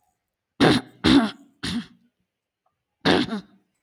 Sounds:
Throat clearing